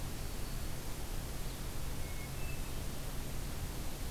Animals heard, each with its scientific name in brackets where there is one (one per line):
Hermit Thrush (Catharus guttatus)
Ovenbird (Seiurus aurocapilla)